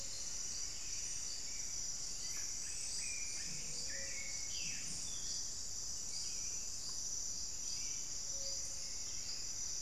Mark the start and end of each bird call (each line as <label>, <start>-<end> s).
Plumbeous Antbird (Myrmelastes hyperythrus), 0.0-1.7 s
Mealy Parrot (Amazona farinosa), 0.0-2.6 s
Black-billed Thrush (Turdus ignobilis), 0.0-9.8 s
unidentified bird, 8.6-9.8 s